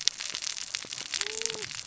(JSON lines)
{"label": "biophony, cascading saw", "recorder": "SoundTrap 600 or HydroMoth"}